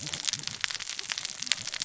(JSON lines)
{"label": "biophony, cascading saw", "recorder": "SoundTrap 600 or HydroMoth"}